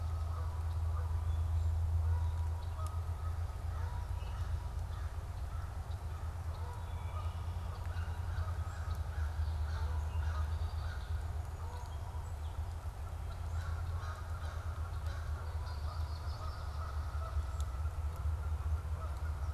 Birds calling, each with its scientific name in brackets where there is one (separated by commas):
Red-winged Blackbird (Agelaius phoeniceus), Canada Goose (Branta canadensis), Yellow-rumped Warbler (Setophaga coronata)